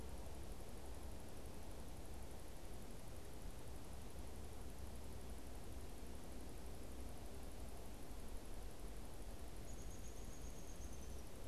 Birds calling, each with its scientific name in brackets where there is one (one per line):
Downy Woodpecker (Dryobates pubescens)